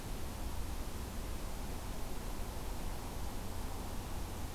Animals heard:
forest ambience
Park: Acadia National Park